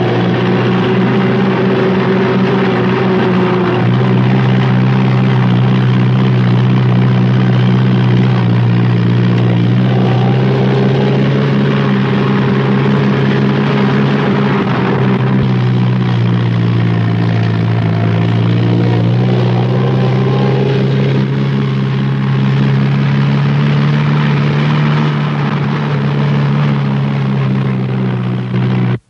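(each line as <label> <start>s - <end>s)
A propeller sounds nearby with steady volume. 0.1s - 14.9s
Propellers losing power nearby. 14.8s - 21.3s
Propellers increasing in power nearby. 21.5s - 25.1s
Propellers losing power nearby. 25.2s - 29.0s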